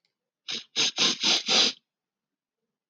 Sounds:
Sniff